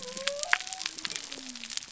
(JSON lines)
{"label": "biophony", "recorder": "SoundTrap 300"}